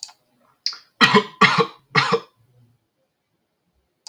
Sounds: Cough